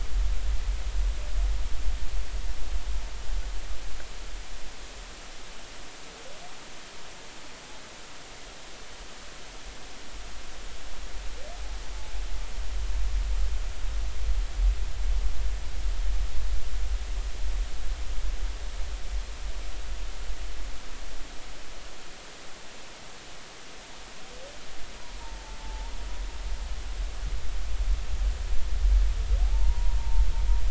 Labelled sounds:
25.2	25.9	humpback whale, 0.83 to 0.99 kHz
29.4	30.3	humpback whale, 0.80 to 1.1 kHz

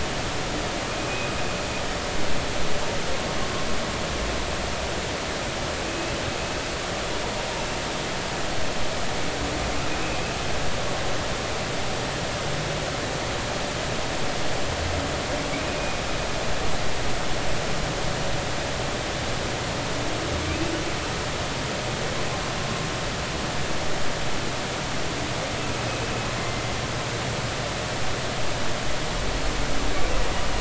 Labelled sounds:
0.9	1.3	humpback whale, 2.3 to 2.6 kHz
5.8	6.1	humpback whale, 2.5 to 2.7 kHz
15.5	16.0	humpback whale, 2.2 to 2.5 kHz
26.4	26.6	humpback whale, 2.0 to 2.1 kHz

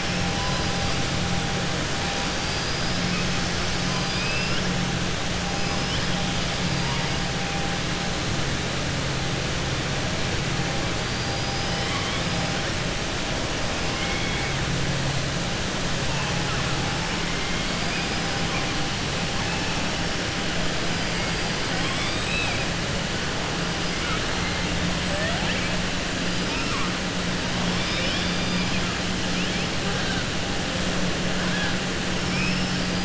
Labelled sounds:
2.3	2.9	killer whale, southern resident, 4.3 to 5.1 kHz
3.8	4.6	killer whale, southern resident, 2.4 to 5.6 kHz
13.9	14.5	killer whale, southern resident, 1.6 to 3.4 kHz
21.7	22.6	killer whale, southern resident, 0.83 to 5.2 kHz

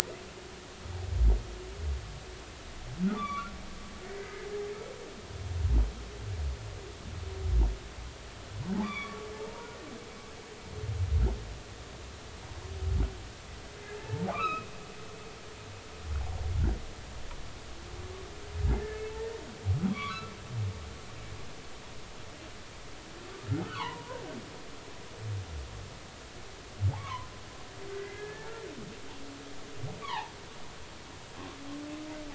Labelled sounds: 3.0	3.5	humpback whale, 1.1 to 3.6 kHz
4.0	4.5	humpback whale, 1.8 to 2.2 kHz
8.7	9.8	humpback whale, 0.80 to 3.6 kHz
14.0	14.7	humpback whale, 0.83 to 2.9 kHz
19.2	19.4	humpback whale, 1.8 to 1.9 kHz
19.9	20.3	humpback whale, 0.99 to 3.6 kHz
23.6	24.2	humpback whale, 0.80 to 1.5 kHz
26.9	28.5	humpback whale, 0.80 to 2.3 kHz
30.0	30.3	humpback whale, 0.80 to 3.5 kHz

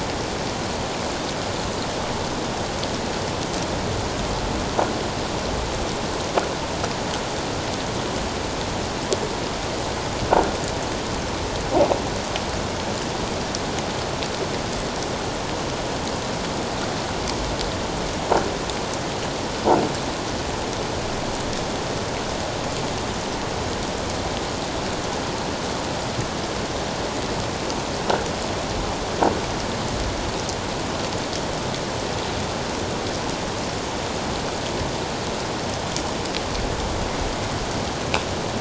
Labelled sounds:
10.3	10.6	croaking sound likely from a nearby submerged object, 1.4 to 1.5 kHz

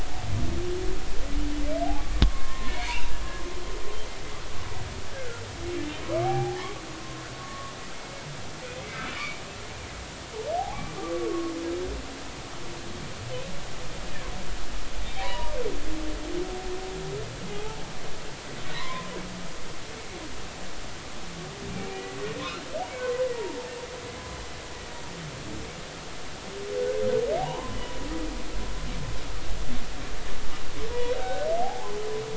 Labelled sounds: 2.2	3.1	humpback whale, 0.90 to 2.4 kHz
5.1	5.4	humpback whale, 1.3 to 1.8 kHz
6.2	6.7	humpback whale, 0.80 to 2.4 kHz
7.4	7.7	humpback whale, 1.1 to 1.2 kHz
9.1	9.4	humpback whale, 2.2 to 2.5 kHz
10.6	11.5	humpback whale, 0.80 to 1.2 kHz
15.2	15.6	humpback whale, 0.90 to 1.1 kHz
17.5	17.8	humpback whale, 0.80 to 0.93 kHz
18.7	19.1	humpback whale, 0.90 to 2.3 kHz
26.8	27.8	humpback whale, 0.80 to 1.6 kHz
31.2	31.9	humpback whale, 0.80 to 1.6 kHz

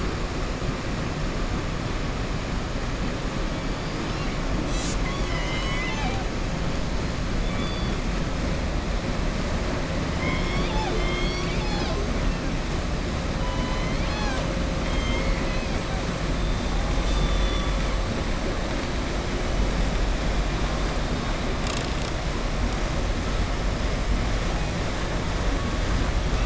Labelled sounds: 3.8	4.3	killer whale, southern resident, 2.2 to 5.1 kHz
7.4	7.9	killer whale, southern resident, 3.4 to 4.7 kHz
14.8	15.7	killer whale, southern resident, 2.0 to 4.4 kHz

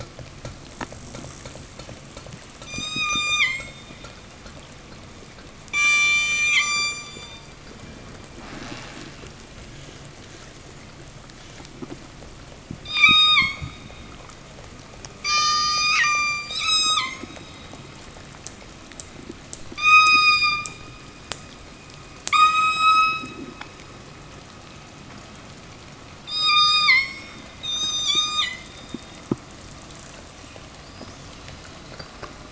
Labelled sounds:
2.5	4.0	killer whale, southern resident, 0 to 8.0 kHz
5.6	7.7	killer whale, southern resident, 0.72 to 8.0 kHz
12.7	13.8	killer whale, southern resident, 0 to 8.0 kHz
15.0	17.5	killer whale, southern resident, 0.58 to 8.0 kHz
19.7	21.0	killer whale, southern resident, 0.43 to 8.0 kHz
22.2	23.9	killer whale, southern resident, 0.87 to 8.0 kHz
26.1	28.7	killer whale, southern resident, 0.51 to 8.0 kHz

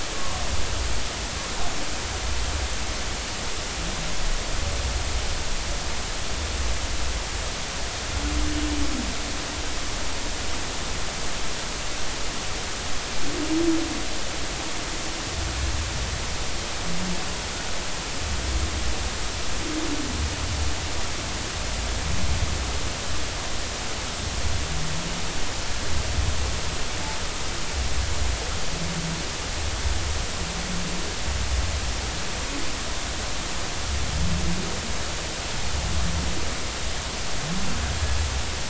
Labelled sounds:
0.1	0.4	humpback whale, 1.0 to 1.2 kHz

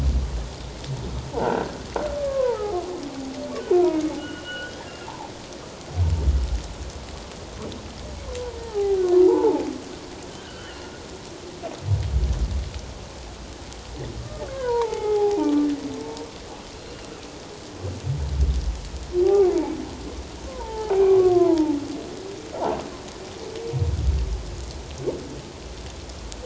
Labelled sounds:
1.4	1.8	croaking sound likely from a nearby submerged object, 1.3 to 1.7 kHz
2.2	2.6	humpback whale, 0.84 to 1.2 kHz
3.6	5.1	humpback whale, 0.91 to 3.4 kHz
8.6	9.6	humpback whale, 0.78 to 1.1 kHz
10.4	10.8	humpback whale, 1.3 to 3.1 kHz
14.2	15.7	humpback whale, 0.78 to 2.3 kHz
19.2	19.7	humpback whale, 0.78 to 1.2 kHz
20.5	21.8	humpback whale, 0.78 to 1.8 kHz

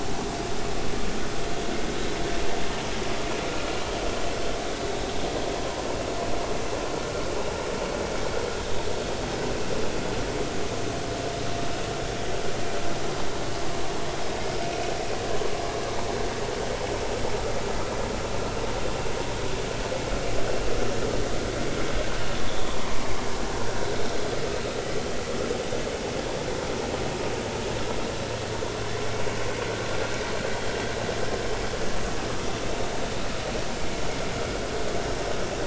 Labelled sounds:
22.5	22.8	vessel noise, 3.2 to 3.6 kHz

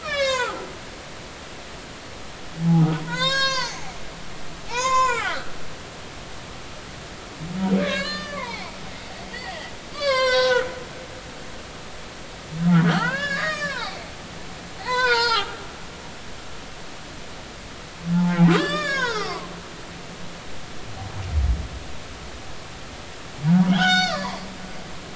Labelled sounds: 0.0	0.6	humpback whale, 0.80 to 7.8 kHz
2.6	3.8	humpback whale, 0.80 to 8.0 kHz
4.7	5.5	humpback whale, 0.80 to 7.4 kHz
7.8	8.7	humpback whale, 0.80 to 4.9 kHz
9.3	10.7	humpback whale, 0.90 to 8.0 kHz
12.8	14.0	humpback whale, 0.80 to 5.6 kHz
14.8	15.5	humpback whale, 0.80 to 5.4 kHz
18.5	19.5	humpback whale, 0.90 to 6.8 kHz
23.5	24.4	humpback whale, 0.80 to 7.5 kHz

